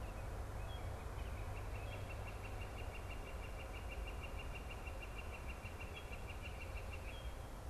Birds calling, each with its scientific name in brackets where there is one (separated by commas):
Northern Flicker (Colaptes auratus), American Robin (Turdus migratorius)